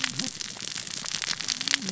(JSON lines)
{"label": "biophony, cascading saw", "recorder": "SoundTrap 600 or HydroMoth"}